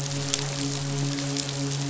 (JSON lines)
{"label": "biophony, midshipman", "recorder": "SoundTrap 500"}